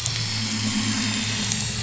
{"label": "anthrophony, boat engine", "recorder": "SoundTrap 500"}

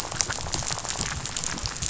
{"label": "biophony, rattle", "recorder": "SoundTrap 500"}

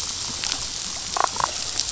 {"label": "biophony, damselfish", "recorder": "SoundTrap 500"}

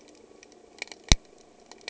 {"label": "anthrophony, boat engine", "recorder": "HydroMoth"}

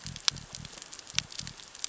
{"label": "biophony", "recorder": "SoundTrap 600 or HydroMoth"}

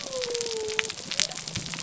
{"label": "biophony", "recorder": "SoundTrap 300"}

